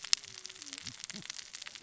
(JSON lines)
{"label": "biophony, cascading saw", "recorder": "SoundTrap 600 or HydroMoth"}